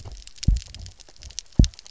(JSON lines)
{"label": "biophony, double pulse", "recorder": "SoundTrap 300"}